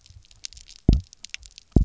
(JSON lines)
{"label": "biophony, double pulse", "recorder": "SoundTrap 300"}